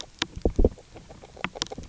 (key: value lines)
label: biophony, grazing
recorder: SoundTrap 300